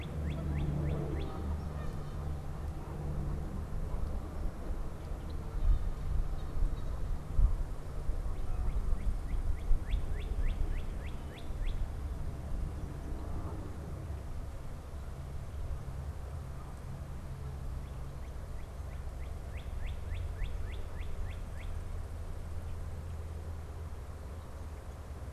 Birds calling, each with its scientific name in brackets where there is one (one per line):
Canada Goose (Branta canadensis)
Northern Cardinal (Cardinalis cardinalis)